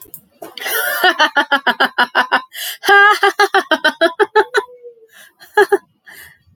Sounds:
Laughter